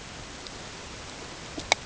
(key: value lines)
label: ambient
recorder: HydroMoth